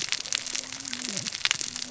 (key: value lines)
label: biophony, cascading saw
recorder: SoundTrap 600 or HydroMoth